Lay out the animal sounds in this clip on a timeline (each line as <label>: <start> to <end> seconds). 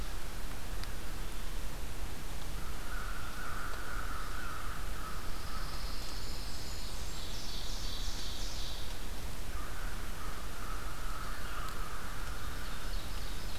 American Crow (Corvus brachyrhynchos): 2.4 to 6.3 seconds
Pine Warbler (Setophaga pinus): 5.1 to 7.0 seconds
Blackburnian Warbler (Setophaga fusca): 5.6 to 7.5 seconds
Ovenbird (Seiurus aurocapilla): 6.8 to 9.3 seconds
American Crow (Corvus brachyrhynchos): 9.3 to 13.3 seconds
Ovenbird (Seiurus aurocapilla): 12.2 to 13.6 seconds